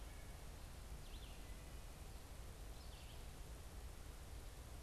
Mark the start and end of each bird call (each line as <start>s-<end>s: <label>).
0.0s-3.6s: Red-eyed Vireo (Vireo olivaceus)